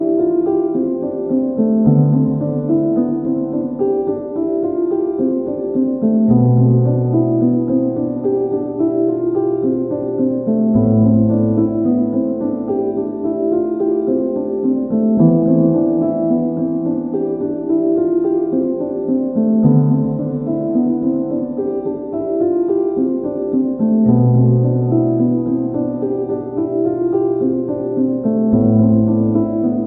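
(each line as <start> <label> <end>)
0.0 A calm melody is played on an old piano with reverb. 29.9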